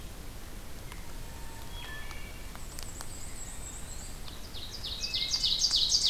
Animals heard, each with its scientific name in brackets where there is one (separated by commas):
Eastern Wood-Pewee (Contopus virens), Black-and-white Warbler (Mniotilta varia), Ovenbird (Seiurus aurocapilla), Wood Thrush (Hylocichla mustelina)